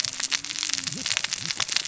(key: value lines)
label: biophony, cascading saw
recorder: SoundTrap 600 or HydroMoth